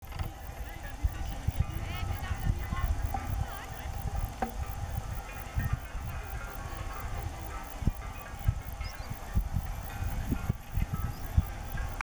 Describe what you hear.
Metrioptera saussuriana, an orthopteran